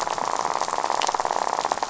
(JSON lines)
{"label": "biophony, rattle", "recorder": "SoundTrap 500"}